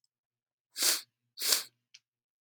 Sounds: Sniff